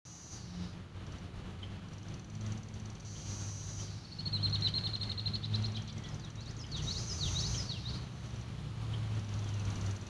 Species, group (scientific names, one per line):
Magicicada cassini
Cicadidae